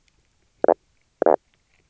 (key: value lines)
label: biophony, knock croak
recorder: SoundTrap 300